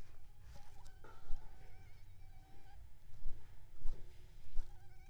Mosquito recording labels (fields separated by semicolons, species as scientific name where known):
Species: Aedes aegypti; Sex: female; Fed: unfed; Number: one; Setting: cup